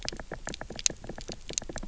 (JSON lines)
{"label": "biophony, knock", "recorder": "SoundTrap 300"}